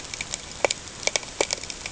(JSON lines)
{"label": "ambient", "recorder": "HydroMoth"}